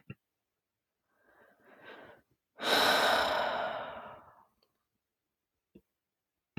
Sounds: Sigh